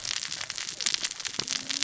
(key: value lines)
label: biophony, cascading saw
recorder: SoundTrap 600 or HydroMoth